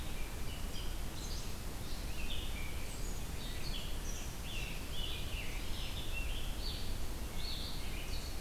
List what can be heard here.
Red-eyed Vireo, Scarlet Tanager